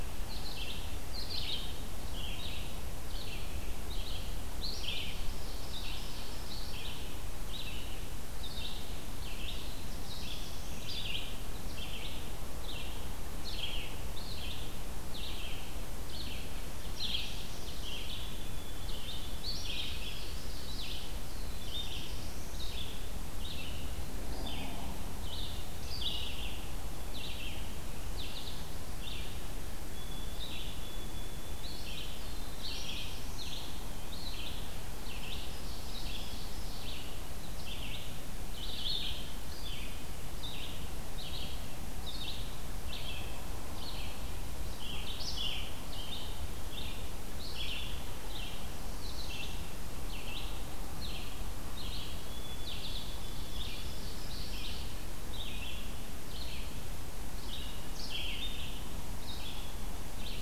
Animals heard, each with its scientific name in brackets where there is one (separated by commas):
Black-throated Blue Warbler (Setophaga caerulescens), Red-eyed Vireo (Vireo olivaceus), Ovenbird (Seiurus aurocapilla), White-throated Sparrow (Zonotrichia albicollis)